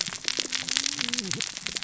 {"label": "biophony, cascading saw", "recorder": "SoundTrap 600 or HydroMoth"}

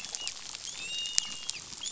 {"label": "biophony, dolphin", "recorder": "SoundTrap 500"}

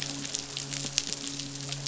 {"label": "biophony, midshipman", "recorder": "SoundTrap 500"}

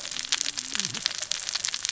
{"label": "biophony, cascading saw", "recorder": "SoundTrap 600 or HydroMoth"}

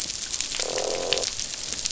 {"label": "biophony, croak", "recorder": "SoundTrap 500"}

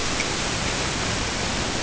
{"label": "ambient", "recorder": "HydroMoth"}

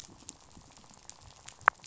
{"label": "biophony, rattle", "recorder": "SoundTrap 500"}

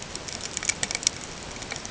{"label": "ambient", "recorder": "HydroMoth"}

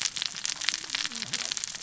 {"label": "biophony, cascading saw", "recorder": "SoundTrap 600 or HydroMoth"}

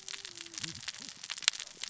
{"label": "biophony, cascading saw", "recorder": "SoundTrap 600 or HydroMoth"}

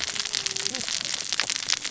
{"label": "biophony, cascading saw", "recorder": "SoundTrap 600 or HydroMoth"}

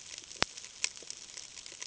{"label": "ambient", "recorder": "HydroMoth"}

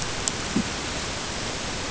{"label": "ambient", "recorder": "HydroMoth"}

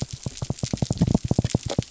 {"label": "biophony", "recorder": "SoundTrap 300"}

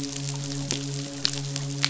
{"label": "biophony, midshipman", "recorder": "SoundTrap 500"}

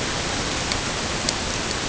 {"label": "ambient", "recorder": "HydroMoth"}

